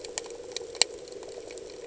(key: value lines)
label: anthrophony, boat engine
recorder: HydroMoth